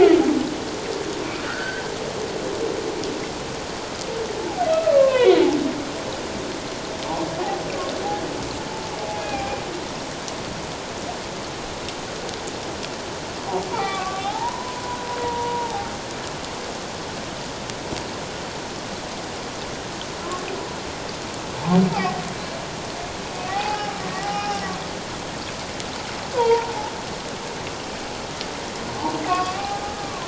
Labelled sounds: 1.4	1.8	humpback whale, 1.3 to 1.8 kHz
4.4	5.4	humpback whale, 0.78 to 3.8 kHz
9.2	9.5	humpback whale, 2.2 to 2.5 kHz
13.7	15.9	humpback whale, 0.78 to 3.8 kHz
21.6	22.2	humpback whale, 0.78 to 0.97 kHz
23.4	24.6	humpback whale, 0.78 to 5.4 kHz
26.3	26.7	humpback whale, 0.84 to 1.1 kHz
28.9	30.2	humpback whale, 0.78 to 2.8 kHz

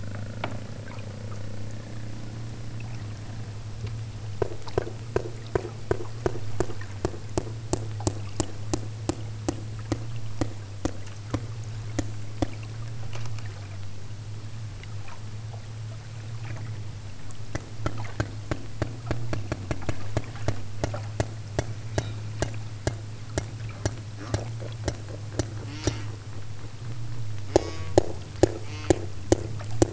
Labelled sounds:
25.6	26.2	killer whale, southern Alaska resident, 0.57 to 8.0 kHz
27.5	28.0	killer whale, southern Alaska resident, 0.68 to 7.0 kHz
28.5	29.1	killer whale, southern Alaska resident, 0.18 to 6.8 kHz

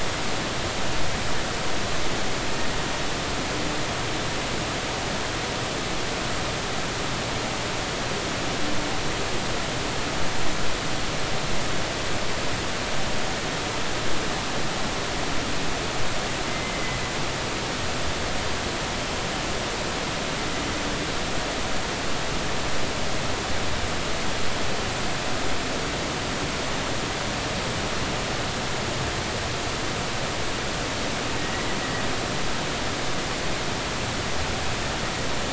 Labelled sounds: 16.5	17.0	humpback whale, 2.0 to 2.1 kHz

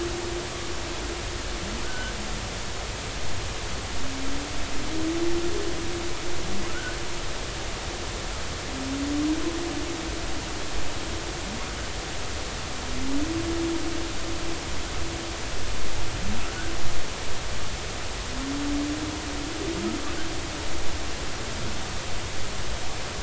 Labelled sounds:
1.8	2.1	humpback whale, 1.4 to 1.6 kHz

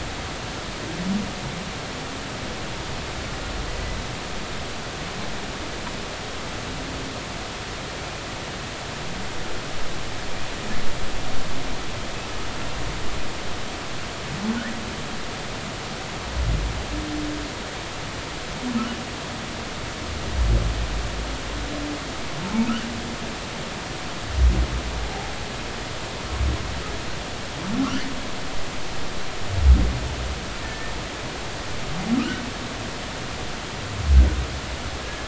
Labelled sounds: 30.6	30.9	humpback whale, 1.7 to 1.9 kHz

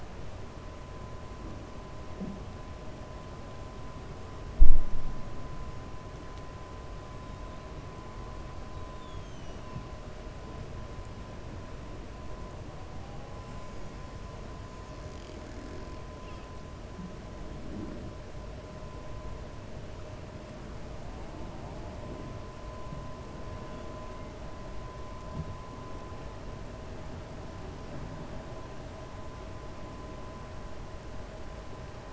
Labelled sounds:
8.9	9.6	killer whale, 2.6 to 4.5 kHz

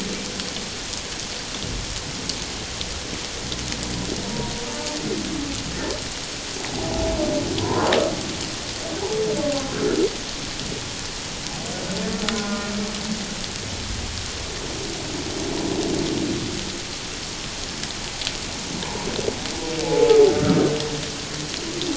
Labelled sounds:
4.3	4.5	humpback whale, 0.91 to 1.0 kHz
7.6	7.9	humpback whale, 0.88 to 1.2 kHz
12.3	12.7	humpback whale, 0.97 to 1.5 kHz
19.8	20.2	humpback whale, 0.81 to 0.91 kHz

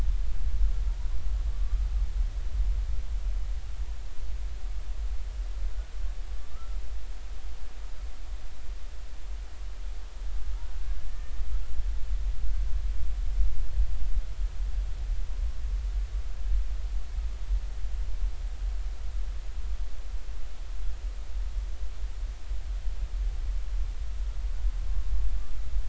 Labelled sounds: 6.5	6.8	humpback whale, 1.2 to 1.4 kHz
10.5	11.3	humpback whale, 1.2 to 1.9 kHz

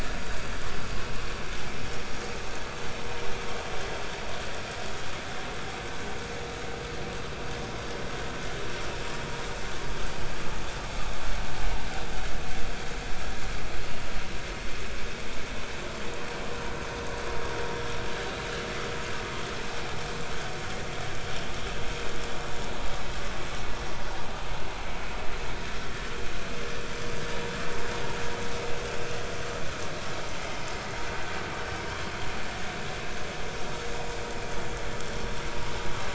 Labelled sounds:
17.6	17.9	vessel noise, 5.6 to 5.8 kHz
19.7	20.0	vessel noise, 0.80 to 0.90 kHz

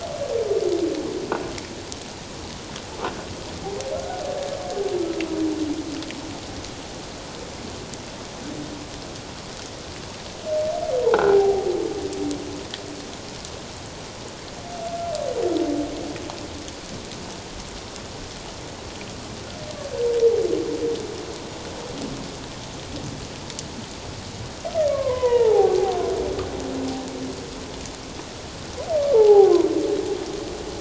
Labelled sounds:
3.9	4.2	humpback whale, 1.3 to 1.6 kHz
11.3	11.7	humpback whale, 0.78 to 0.84 kHz
24.9	25.8	humpback whale, 0.78 to 2.2 kHz
29.1	29.5	humpback whale, 0.78 to 0.97 kHz

